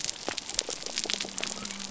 {"label": "biophony", "recorder": "SoundTrap 300"}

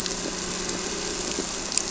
{"label": "anthrophony, boat engine", "recorder": "SoundTrap 300"}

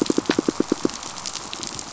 {"label": "biophony, pulse", "recorder": "SoundTrap 500"}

